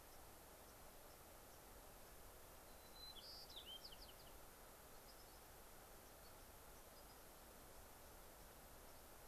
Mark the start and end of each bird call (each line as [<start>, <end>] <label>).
[0.00, 0.20] White-crowned Sparrow (Zonotrichia leucophrys)
[0.60, 1.60] White-crowned Sparrow (Zonotrichia leucophrys)
[2.50, 4.40] White-crowned Sparrow (Zonotrichia leucophrys)
[4.80, 5.40] White-crowned Sparrow (Zonotrichia leucophrys)
[5.90, 7.20] White-crowned Sparrow (Zonotrichia leucophrys)